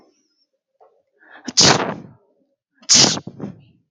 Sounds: Sneeze